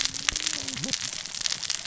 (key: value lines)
label: biophony, cascading saw
recorder: SoundTrap 600 or HydroMoth